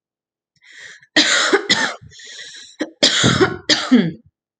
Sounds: Cough